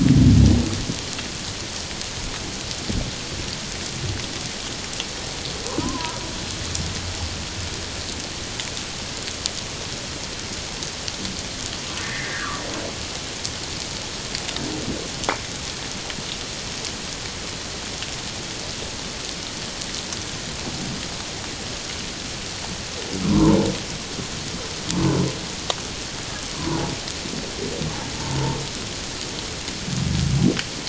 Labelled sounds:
5.8	6.2	humpback whale, 0.91 to 1.1 kHz
12.0	12.6	humpback whale, 0.97 to 2.2 kHz
23.3	23.6	humpback whale, 0.84 to 1.2 kHz
26.5	26.8	humpback whale, 0.91 to 1.2 kHz

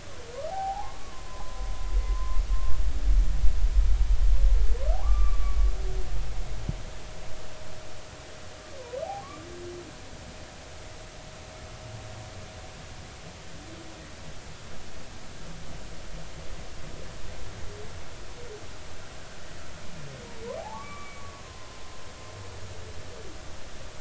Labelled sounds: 0.5	2.4	humpback whale, 0.80 to 1.2 kHz
5.0	5.7	humpback whale, 0.96 to 2.4 kHz
9.2	9.5	humpback whale, 1.0 to 1.2 kHz
20.6	21.8	humpback whale, 0.80 to 2.4 kHz

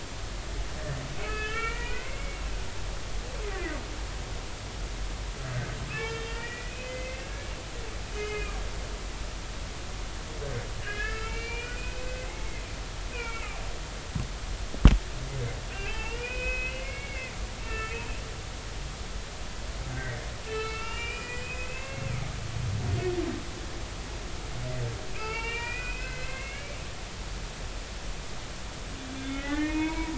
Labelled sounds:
1.2	2.4	humpback whale, 1.2 to 3.2 kHz
5.9	7.3	humpback whale, 1.3 to 3.3 kHz
8.1	8.6	humpback whale, 1.6 to 3.0 kHz
10.8	13.6	humpback whale, 1.2 to 5.0 kHz
15.7	17.4	humpback whale, 0.83 to 5.0 kHz
17.6	18.0	humpback whale, 1.2 to 2.8 kHz
20.0	22.5	humpback whale, 1.2 to 5.4 kHz
25.1	26.8	humpback whale, 0.83 to 4.6 kHz
29.1	30.1	humpback whale, 0.90 to 3.6 kHz

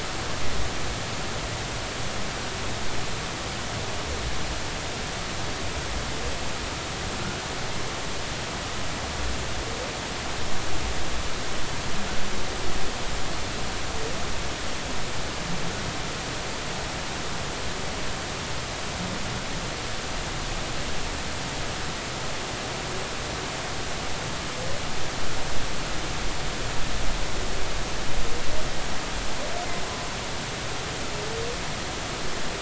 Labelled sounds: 7.2	7.4	humpback whale, 1.3 to 1.6 kHz

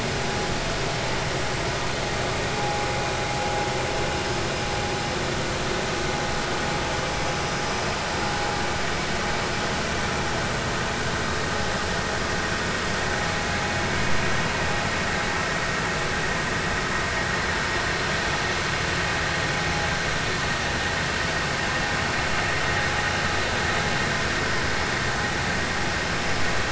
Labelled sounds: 2.6	2.8	vessel noise, 0.80 to 0.86 kHz

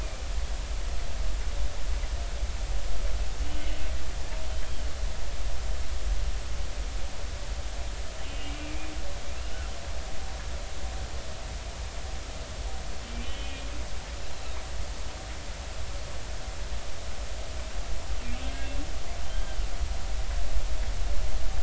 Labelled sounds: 4.5	4.8	humpback whale, 3.0 to 3.3 kHz
8.2	9.7	humpback whale, 1.3 to 2.9 kHz
13.2	13.7	humpback whale, 2.4 to 3.1 kHz
19.2	19.7	humpback whale, 1.4 to 3.3 kHz

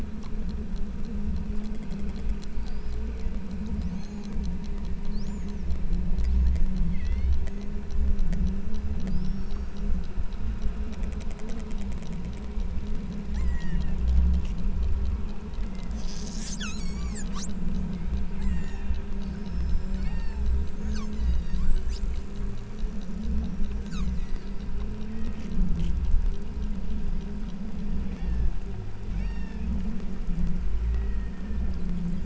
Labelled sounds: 3.0	3.4	killer whale, southern Alaska resident, 1.7 to 2.8 kHz
3.9	4.4	killer whale, southern Alaska resident, 3.1 to 7.0 kHz
5.3	5.7	killer whale, southern Alaska resident, 2.1 to 3.3 kHz
6.8	7.3	killer whale, southern Alaska resident, 1.7 to 6.1 kHz
13.2	14.0	killer whale, southern Alaska resident, 1.5 to 6.0 kHz
15.7	16.1	killer whale, southern Alaska resident, 1.5 to 2.2 kHz
16.5	17.3	killer whale, southern Alaska resident, 0.98 to 8.0 kHz
17.9	19.0	killer whale, southern Alaska resident, 1.6 to 8.0 kHz
20.0	20.4	killer whale, southern Alaska resident, 1.6 to 5.8 kHz
21.1	21.8	killer whale, southern Alaska resident, 1.6 to 6.0 kHz
23.9	24.6	killer whale, southern Alaska resident, 1.0 to 2.9 kHz
25.2	25.5	killer whale, southern Alaska resident, 1.1 to 2.1 kHz
28.1	28.6	killer whale, southern Alaska resident, 1.5 to 6.4 kHz
29.1	29.7	killer whale, southern Alaska resident, 1.6 to 8.0 kHz
30.9	31.8	killer whale, southern Alaska resident, 1.3 to 2.3 kHz

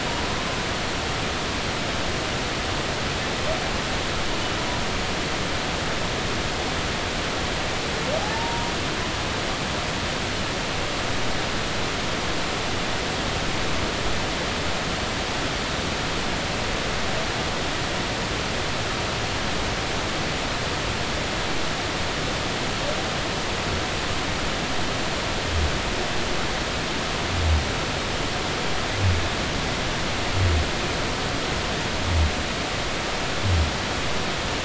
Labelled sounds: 8.2	8.7	humpback whale, 0.80 to 1.0 kHz

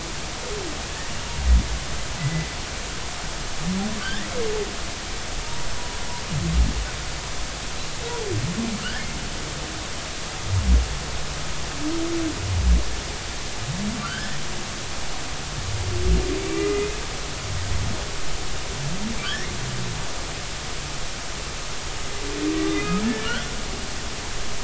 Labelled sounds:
2.2	2.5	humpback whale, 2.0 to 2.1 kHz
4.0	4.3	humpback whale, 1.4 to 2.0 kHz
8.8	9.1	humpback whale, 1.2 to 1.9 kHz
14.0	14.4	humpback whale, 1.3 to 1.9 kHz
16.4	16.9	humpback whale, 1.2 to 2.5 kHz
19.2	19.5	humpback whale, 1.3 to 2.2 kHz
22.6	23.5	humpback whale, 1.1 to 3.5 kHz

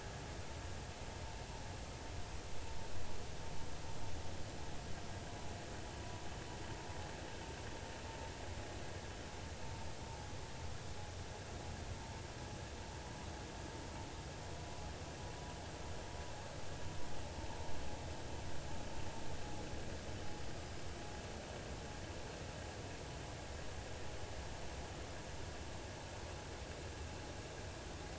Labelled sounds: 20.5	20.8	vessel noise, 4.9 to 5.1 kHz

